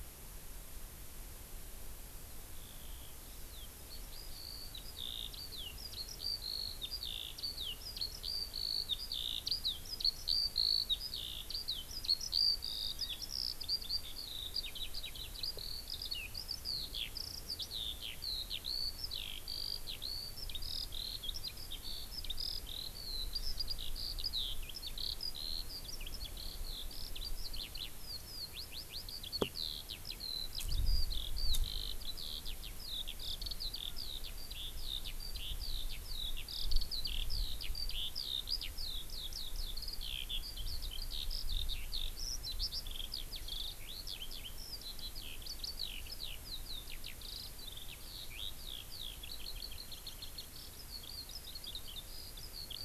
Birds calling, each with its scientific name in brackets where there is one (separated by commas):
Hawaii Amakihi (Chlorodrepanis virens), Eurasian Skylark (Alauda arvensis)